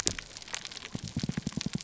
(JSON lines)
{"label": "biophony", "recorder": "SoundTrap 300"}